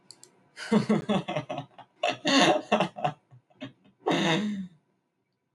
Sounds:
Laughter